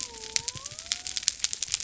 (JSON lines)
{"label": "biophony", "recorder": "SoundTrap 300"}